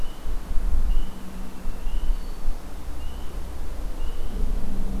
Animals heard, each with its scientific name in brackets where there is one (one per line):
Hermit Thrush (Catharus guttatus)